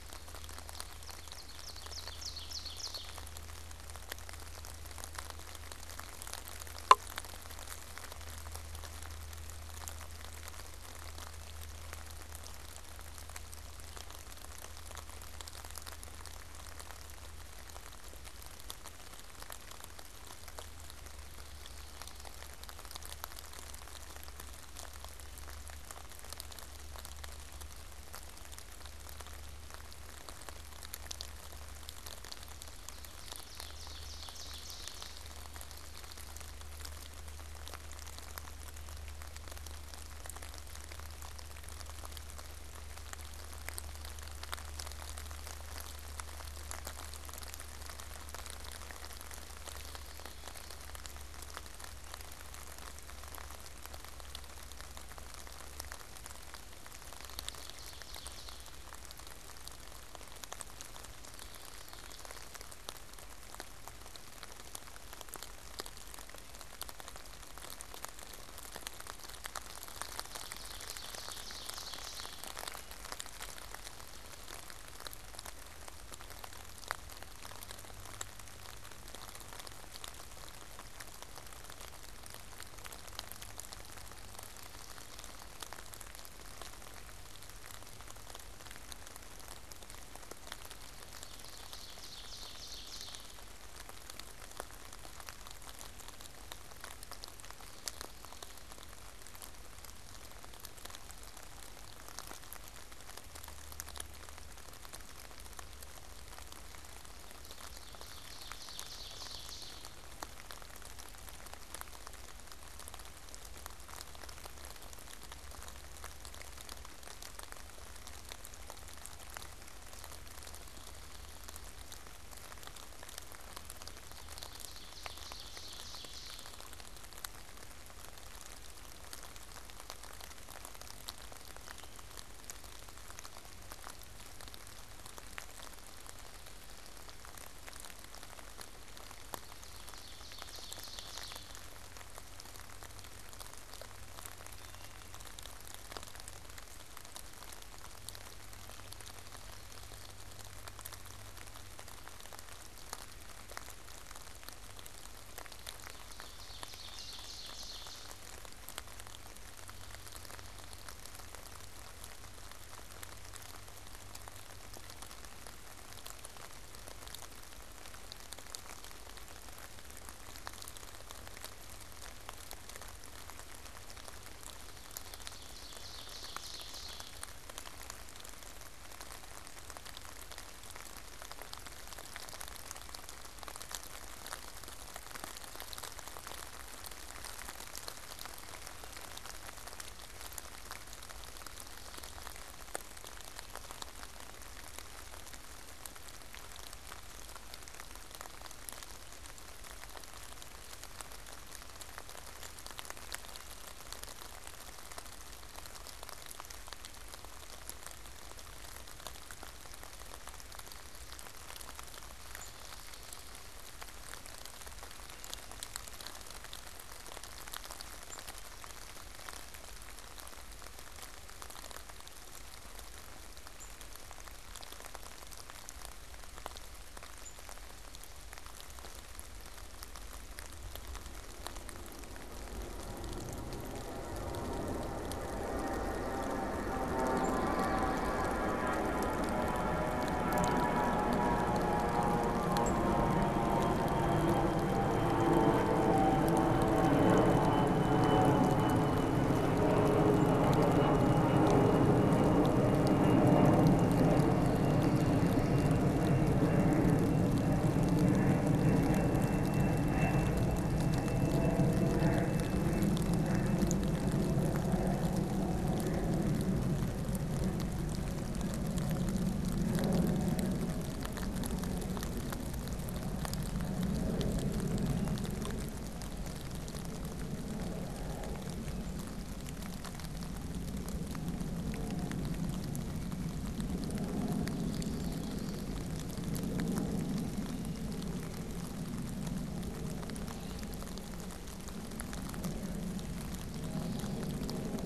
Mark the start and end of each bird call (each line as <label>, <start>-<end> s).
Ovenbird (Seiurus aurocapilla), 0.6-3.6 s
Ovenbird (Seiurus aurocapilla), 32.7-35.5 s
Ovenbird (Seiurus aurocapilla), 56.7-58.9 s
Common Yellowthroat (Geothlypis trichas), 60.9-63.2 s
Ovenbird (Seiurus aurocapilla), 69.8-72.8 s
Ovenbird (Seiurus aurocapilla), 90.8-93.7 s
Ovenbird (Seiurus aurocapilla), 107.1-110.1 s
Ovenbird (Seiurus aurocapilla), 124.1-126.9 s
Ovenbird (Seiurus aurocapilla), 139.0-141.8 s
Ovenbird (Seiurus aurocapilla), 155.7-158.4 s
Ovenbird (Seiurus aurocapilla), 174.6-177.5 s
unidentified bird, 212.2-212.6 s
unidentified bird, 217.9-218.3 s
unidentified bird, 223.5-227.7 s
unidentified bird, 237.2-243.1 s
Common Yellowthroat (Geothlypis trichas), 253.7-255.9 s
Common Yellowthroat (Geothlypis trichas), 284.2-286.2 s